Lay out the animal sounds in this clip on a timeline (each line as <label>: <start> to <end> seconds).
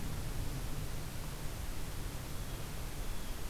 Blue Jay (Cyanocitta cristata): 2.2 to 3.5 seconds